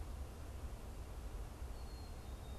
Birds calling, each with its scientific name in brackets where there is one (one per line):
Black-capped Chickadee (Poecile atricapillus)